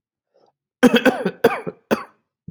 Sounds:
Cough